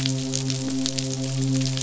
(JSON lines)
{"label": "biophony, midshipman", "recorder": "SoundTrap 500"}